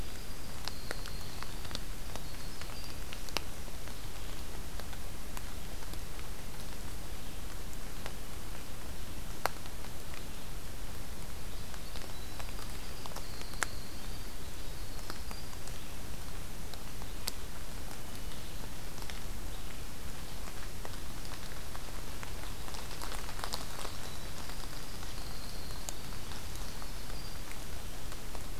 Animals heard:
Winter Wren (Troglodytes hiemalis)

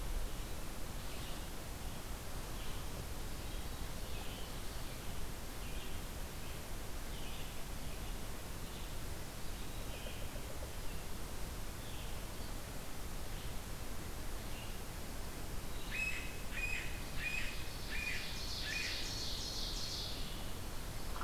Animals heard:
Yellow-bellied Sapsucker (Sphyrapicus varius), Ovenbird (Seiurus aurocapilla), Red-eyed Vireo (Vireo olivaceus)

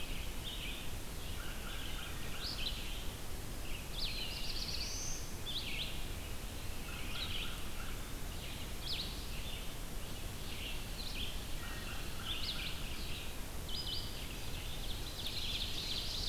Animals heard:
American Crow (Corvus brachyrhynchos), Wood Thrush (Hylocichla mustelina), Ovenbird (Seiurus aurocapilla), Eastern Wood-Pewee (Contopus virens), Red-eyed Vireo (Vireo olivaceus), Black-throated Blue Warbler (Setophaga caerulescens)

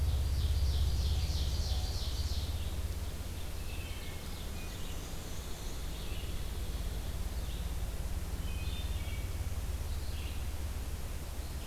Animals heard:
Ovenbird (Seiurus aurocapilla), Red-eyed Vireo (Vireo olivaceus), Wood Thrush (Hylocichla mustelina), Black-and-white Warbler (Mniotilta varia), Hairy Woodpecker (Dryobates villosus)

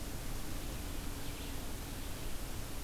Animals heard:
Red-eyed Vireo (Vireo olivaceus)

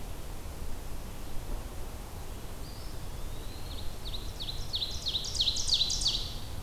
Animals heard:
Eastern Wood-Pewee (Contopus virens), Ovenbird (Seiurus aurocapilla)

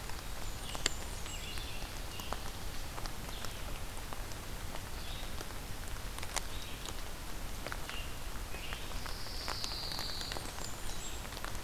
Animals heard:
Blackburnian Warbler (Setophaga fusca), Pine Warbler (Setophaga pinus), Red-eyed Vireo (Vireo olivaceus)

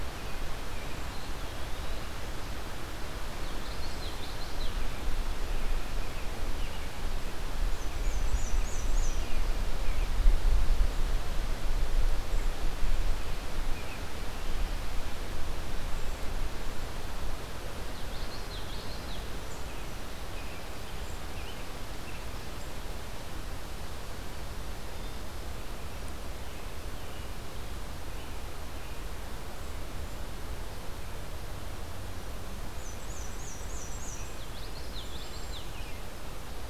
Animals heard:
American Robin (Turdus migratorius), Black-and-white Warbler (Mniotilta varia), Common Yellowthroat (Geothlypis trichas), Cedar Waxwing (Bombycilla cedrorum), Eastern Wood-Pewee (Contopus virens)

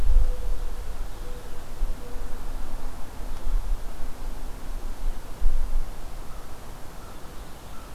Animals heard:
American Crow (Corvus brachyrhynchos), Mourning Dove (Zenaida macroura)

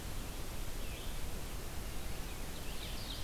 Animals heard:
Red-eyed Vireo (Vireo olivaceus), Ovenbird (Seiurus aurocapilla)

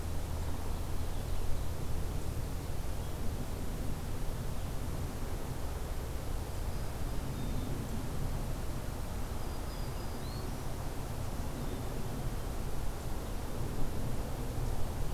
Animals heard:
Ovenbird (Seiurus aurocapilla), Black-capped Chickadee (Poecile atricapillus), Black-throated Green Warbler (Setophaga virens)

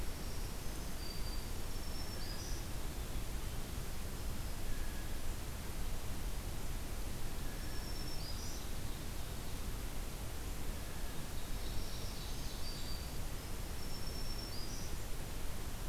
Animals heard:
Ovenbird (Seiurus aurocapilla), Black-capped Chickadee (Poecile atricapillus), Blue Jay (Cyanocitta cristata), Black-throated Green Warbler (Setophaga virens)

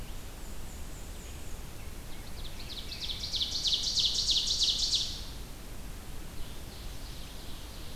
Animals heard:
Black-and-white Warbler (Mniotilta varia), Ovenbird (Seiurus aurocapilla)

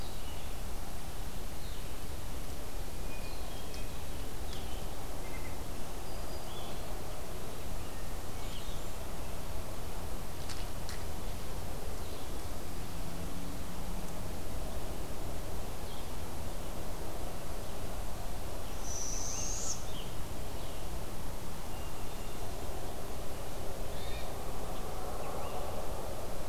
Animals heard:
Blackburnian Warbler (Setophaga fusca), Scarlet Tanager (Piranga olivacea), Barred Owl (Strix varia), Blue-headed Vireo (Vireo solitarius), Hermit Thrush (Catharus guttatus)

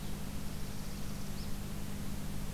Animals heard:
Northern Parula (Setophaga americana)

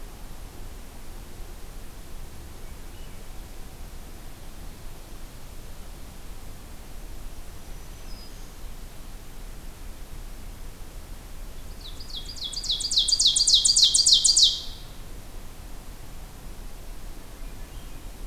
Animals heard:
Swainson's Thrush (Catharus ustulatus), Black-throated Green Warbler (Setophaga virens), Ovenbird (Seiurus aurocapilla)

